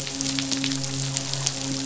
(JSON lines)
{"label": "biophony, midshipman", "recorder": "SoundTrap 500"}